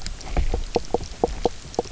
{"label": "biophony, knock croak", "recorder": "SoundTrap 300"}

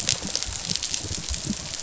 {"label": "biophony, rattle response", "recorder": "SoundTrap 500"}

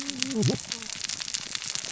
{"label": "biophony, cascading saw", "recorder": "SoundTrap 600 or HydroMoth"}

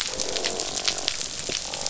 {"label": "biophony, croak", "recorder": "SoundTrap 500"}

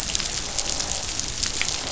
{"label": "biophony, croak", "recorder": "SoundTrap 500"}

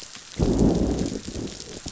{"label": "biophony, growl", "recorder": "SoundTrap 500"}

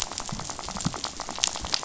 {"label": "biophony, rattle", "recorder": "SoundTrap 500"}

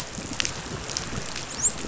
{"label": "biophony, dolphin", "recorder": "SoundTrap 500"}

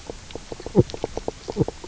{"label": "biophony, knock croak", "recorder": "SoundTrap 300"}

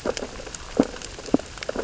{"label": "biophony, sea urchins (Echinidae)", "recorder": "SoundTrap 600 or HydroMoth"}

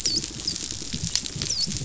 {"label": "biophony, dolphin", "recorder": "SoundTrap 500"}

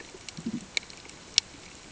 {"label": "ambient", "recorder": "HydroMoth"}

